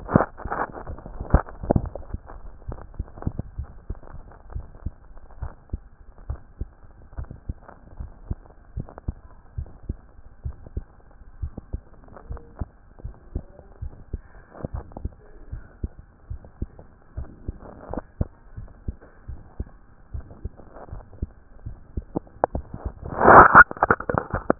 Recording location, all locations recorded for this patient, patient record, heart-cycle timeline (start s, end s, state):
mitral valve (MV)
pulmonary valve (PV)+tricuspid valve (TV)+mitral valve (MV)
#Age: Child
#Sex: Male
#Height: 133.0 cm
#Weight: 28.2 kg
#Pregnancy status: False
#Murmur: Absent
#Murmur locations: nan
#Most audible location: nan
#Systolic murmur timing: nan
#Systolic murmur shape: nan
#Systolic murmur grading: nan
#Systolic murmur pitch: nan
#Systolic murmur quality: nan
#Diastolic murmur timing: nan
#Diastolic murmur shape: nan
#Diastolic murmur grading: nan
#Diastolic murmur pitch: nan
#Diastolic murmur quality: nan
#Outcome: Normal
#Campaign: 2014 screening campaign
0.00	3.58	unannotated
3.58	3.68	S1
3.68	3.88	systole
3.88	3.98	S2
3.98	4.52	diastole
4.52	4.66	S1
4.66	4.84	systole
4.84	4.94	S2
4.94	5.40	diastole
5.40	5.52	S1
5.52	5.72	systole
5.72	5.82	S2
5.82	6.28	diastole
6.28	6.40	S1
6.40	6.60	systole
6.60	6.68	S2
6.68	7.18	diastole
7.18	7.28	S1
7.28	7.48	systole
7.48	7.56	S2
7.56	7.98	diastole
7.98	8.10	S1
8.10	8.28	systole
8.28	8.38	S2
8.38	8.76	diastole
8.76	8.88	S1
8.88	9.06	systole
9.06	9.16	S2
9.16	9.56	diastole
9.56	9.68	S1
9.68	9.88	systole
9.88	9.98	S2
9.98	10.44	diastole
10.44	10.56	S1
10.56	10.74	systole
10.74	10.84	S2
10.84	11.40	diastole
11.40	11.52	S1
11.52	11.72	systole
11.72	11.82	S2
11.82	12.28	diastole
12.28	12.40	S1
12.40	12.60	systole
12.60	12.68	S2
12.68	13.04	diastole
13.04	13.14	S1
13.14	13.34	systole
13.34	13.44	S2
13.44	13.82	diastole
13.82	13.92	S1
13.92	14.12	systole
14.12	14.22	S2
14.22	14.72	diastole
14.72	14.84	S1
14.84	15.02	systole
15.02	15.12	S2
15.12	15.52	diastole
15.52	15.64	S1
15.64	15.82	systole
15.82	15.92	S2
15.92	16.30	diastole
16.30	16.40	S1
16.40	16.60	systole
16.60	16.70	S2
16.70	17.16	diastole
17.16	17.28	S1
17.28	17.46	systole
17.46	17.56	S2
17.56	17.92	diastole
17.92	18.04	S1
18.04	18.18	systole
18.18	18.28	S2
18.28	18.56	diastole
18.56	18.68	S1
18.68	18.86	systole
18.86	18.96	S2
18.96	19.28	diastole
19.28	19.40	S1
19.40	19.58	systole
19.58	19.68	S2
19.68	20.14	diastole
20.14	20.26	S1
20.26	20.44	systole
20.44	20.52	S2
20.52	20.92	diastole
20.92	21.04	S1
21.04	21.20	systole
21.20	21.30	S2
21.30	21.66	diastole
21.66	24.59	unannotated